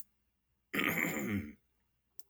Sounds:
Throat clearing